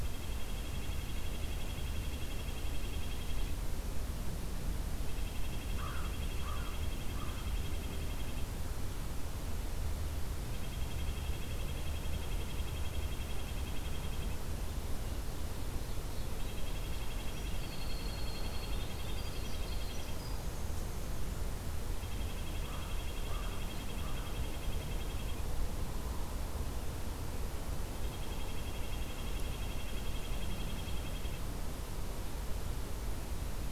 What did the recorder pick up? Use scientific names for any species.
Sitta canadensis, Corvus brachyrhynchos, Troglodytes hiemalis